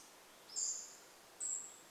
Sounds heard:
Pacific-slope Flycatcher call, Cedar Waxwing call

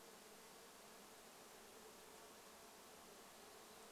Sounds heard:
insect buzz

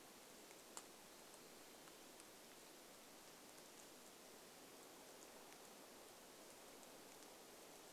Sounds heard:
Black-capped Chickadee song, rain

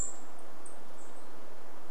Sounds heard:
unidentified bird chip note

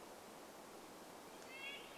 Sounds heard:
Red-breasted Nuthatch song, unidentified sound

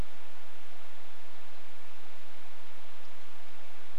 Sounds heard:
unidentified bird chip note

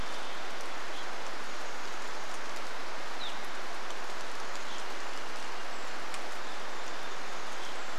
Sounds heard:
Varied Thrush song, rain, Chestnut-backed Chickadee call, Brown Creeper call, Evening Grosbeak call

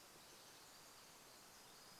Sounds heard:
warbler song, Pacific Wren song

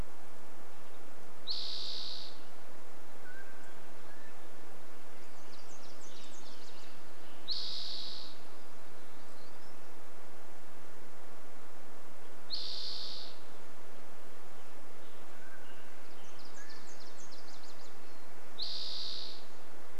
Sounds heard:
Nashville Warbler song, warbler song, Mountain Quail call, Western Tanager song, Spotted Towhee song

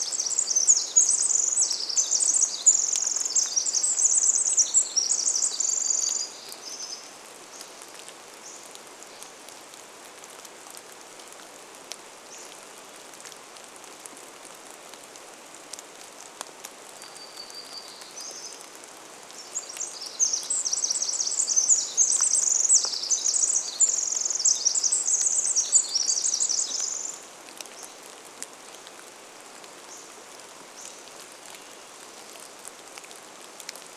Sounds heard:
unidentified bird chip note, rain, Hammond's Flycatcher song, Hermit Warbler song, Pacific Wren song

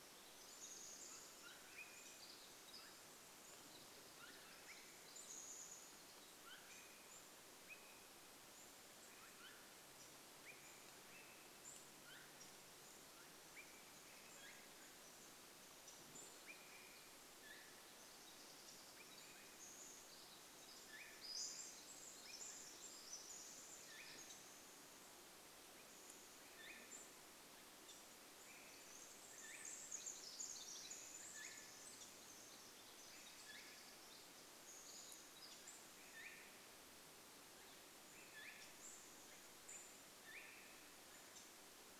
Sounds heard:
unidentified bird chip note, Pacific Wren song, Pacific-slope Flycatcher call, Chestnut-backed Chickadee call, Swainson's Thrush call

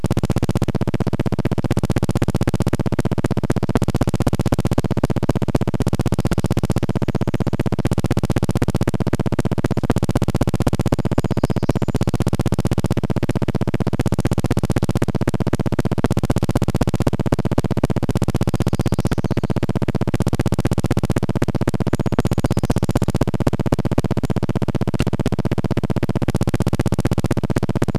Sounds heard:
recorder noise, Brown Creeper song, warbler song

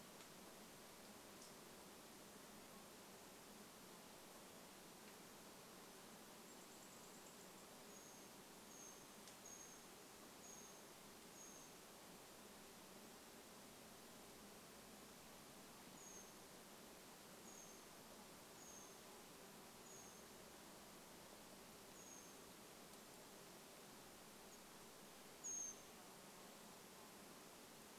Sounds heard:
Brown Creeper call, unidentified sound, Mountain Quail call

